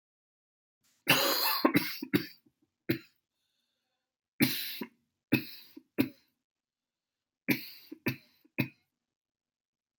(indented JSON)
{
  "expert_labels": [
    {
      "quality": "good",
      "cough_type": "dry",
      "dyspnea": false,
      "wheezing": false,
      "stridor": false,
      "choking": false,
      "congestion": false,
      "nothing": true,
      "diagnosis": "upper respiratory tract infection",
      "severity": "mild"
    }
  ],
  "age": 57,
  "gender": "male",
  "respiratory_condition": false,
  "fever_muscle_pain": false,
  "status": "symptomatic"
}